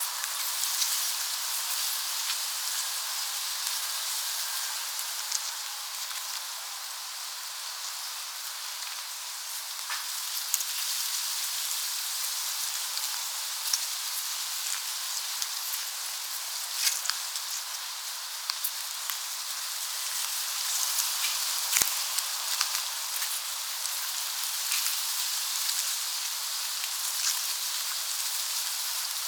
Is someone getting wet?
yes